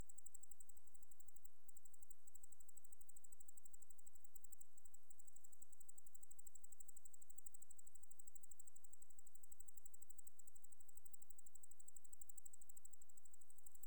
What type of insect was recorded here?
orthopteran